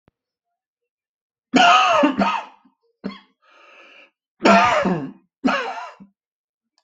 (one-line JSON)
{"expert_labels": [{"quality": "good", "cough_type": "dry", "dyspnea": false, "wheezing": false, "stridor": false, "choking": false, "congestion": false, "nothing": true, "diagnosis": "upper respiratory tract infection", "severity": "mild"}], "age": 55, "gender": "male", "respiratory_condition": false, "fever_muscle_pain": false, "status": "COVID-19"}